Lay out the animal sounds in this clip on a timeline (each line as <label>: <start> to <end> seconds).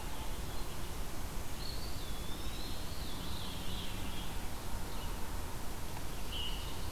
Eastern Wood-Pewee (Contopus virens): 1.5 to 3.0 seconds
Veery (Catharus fuscescens): 2.7 to 4.4 seconds
Veery (Catharus fuscescens): 6.0 to 6.8 seconds